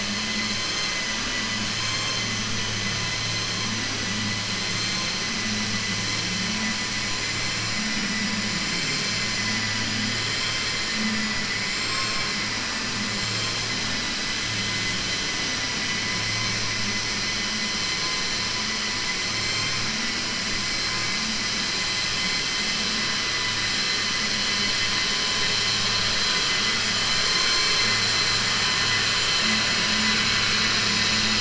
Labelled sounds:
11.6	12.2	vessel noise, 6.3 to 7.6 kHz
19.3	19.8	vessel noise, 1.1 to 4.3 kHz

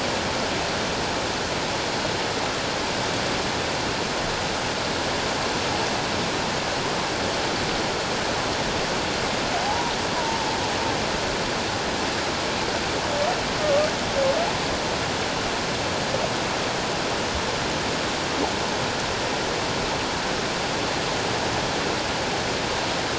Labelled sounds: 9.6	9.9	humpback whale, 0.78 to 1.1 kHz
13.6	13.9	humpback whale, 1.1 to 1.3 kHz

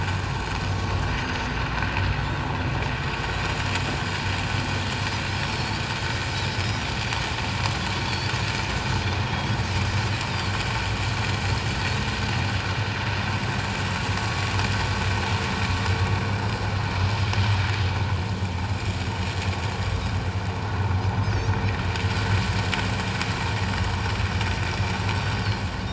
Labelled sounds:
1.2	1.4	Pacific white-sided dolphin, 6.2 to 6.5 kHz
5.4	5.8	Pacific white-sided dolphin, 4.2 to 5.6 kHz
6.5	6.8	Pacific white-sided dolphin, 5.1 to 5.3 kHz
8.1	8.3	Pacific white-sided dolphin, 4.3 to 4.7 kHz
9.2	9.6	Pacific white-sided dolphin, 3.2 to 3.4 kHz
21.2	21.5	Pacific white-sided dolphin, 6.1 to 6.7 kHz

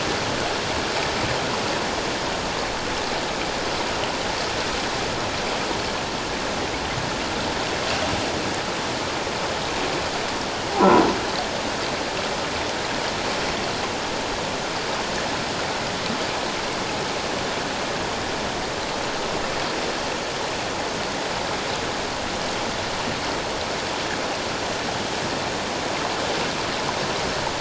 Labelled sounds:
10.8	11.1	croaking sound likely from a nearby submerged object, 0.94 to 1.1 kHz

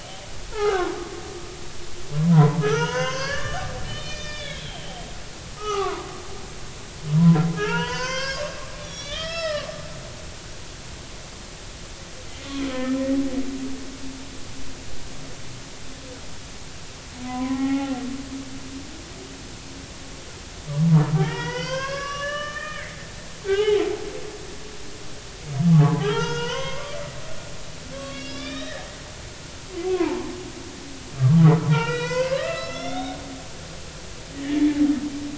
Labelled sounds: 0.5	1.0	humpback whale, 0.80 to 1.6 kHz
2.3	5.0	humpback whale, 0.83 to 6.4 kHz
5.6	6.1	humpback whale, 0.93 to 1.4 kHz
7.5	9.7	humpback whale, 0.83 to 6.4 kHz
12.7	13.0	humpback whale, 1.7 to 1.9 kHz
17.2	18.0	humpback whale, 0.80 to 2.0 kHz
21.2	23.0	humpback whale, 0.90 to 6.1 kHz
23.4	23.8	humpback whale, 0.80 to 0.93 kHz
25.8	27.0	humpback whale, 0.80 to 6.2 kHz
27.9	28.9	humpback whale, 1.1 to 5.8 kHz
29.8	30.3	humpback whale, 0.83 to 2.7 kHz
31.6	33.2	humpback whale, 0.86 to 6.1 kHz
34.3	34.7	humpback whale, 1.7 to 2.1 kHz

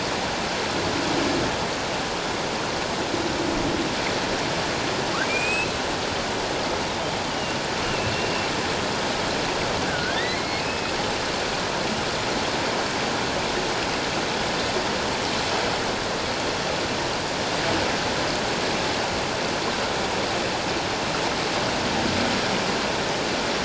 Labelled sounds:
5.2	5.7	humpback whale, 2.2 to 7.9 kHz
7.3	8.5	humpback whale, 2.6 to 3.1 kHz
9.8	10.9	humpback whale, 1.4 to 4.1 kHz

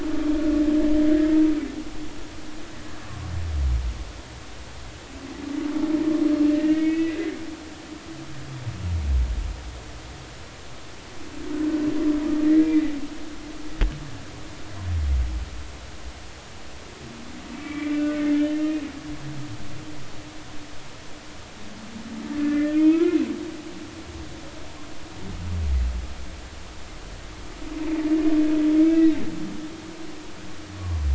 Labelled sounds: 6.5	7.2	humpback whale, 1.7 to 3.0 kHz
12.4	12.9	humpback whale, 1.8 to 2.1 kHz
17.5	18.2	humpback whale, 1.4 to 2.4 kHz
18.5	18.8	humpback whale, 2.7 to 2.8 kHz
22.4	23.2	humpback whale, 0.90 to 3.2 kHz
28.9	29.1	humpback whale, 2.5 to 2.8 kHz
30.8	31.0	humpback whale, 0.99 to 1.2 kHz

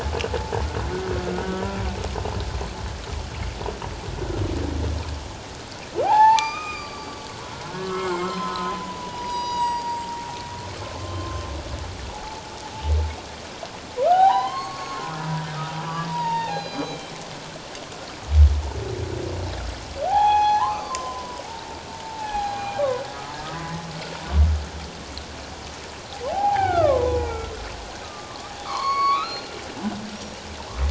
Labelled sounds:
1.3	1.7	humpback whale, 1.4 to 1.6 kHz
6.0	10.1	humpback whale, 0.78 to 7.7 kHz
11.0	11.4	humpback whale, 1.0 to 1.1 kHz
12.1	12.4	humpback whale, 0.78 to 0.94 kHz
14.0	15.3	humpback whale, 0.78 to 6.6 kHz
16.1	17.1	humpback whale, 0.78 to 4.9 kHz
20.0	22.8	humpback whale, 0.78 to 6.6 kHz
26.3	27.5	humpback whale, 0.78 to 2.5 kHz
28.0	29.5	humpback whale, 0.78 to 4.6 kHz
30.1	30.4	humpback whale, 5.4 to 5.8 kHz

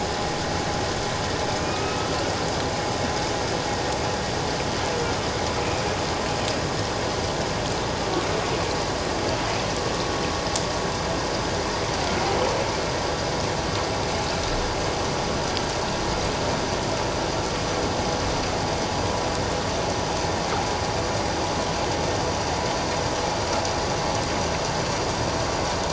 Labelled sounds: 1.6	2.1	humpback whale, 1.2 to 2.7 kHz

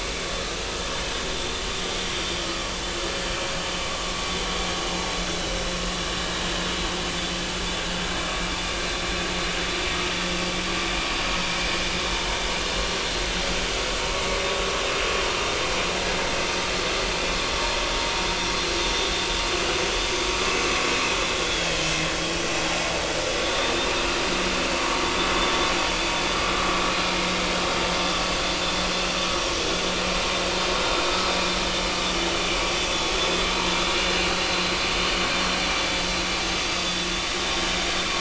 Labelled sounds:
21.4	21.9	vessel noise, 3.0 to 3.5 kHz
23.4	23.9	vessel noise, 3.4 to 3.7 kHz
30.8	31.1	vessel noise, 3.6 to 3.8 kHz
32.8	33.1	vessel noise, 3.4 to 3.5 kHz
33.9	34.4	vessel noise, 2.7 to 2.9 kHz

